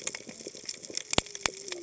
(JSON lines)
{"label": "biophony, cascading saw", "recorder": "HydroMoth"}